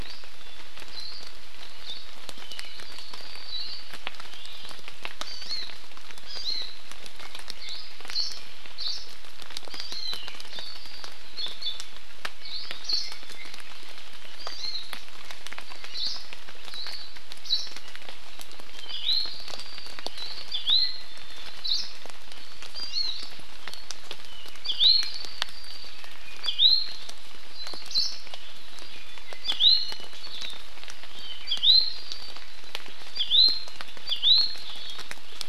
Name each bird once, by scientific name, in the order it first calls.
Himatione sanguinea, Chlorodrepanis virens, Drepanis coccinea